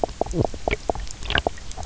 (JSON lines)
{"label": "biophony, knock croak", "recorder": "SoundTrap 300"}